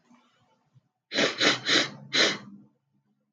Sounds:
Sniff